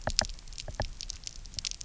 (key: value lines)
label: biophony, knock
recorder: SoundTrap 300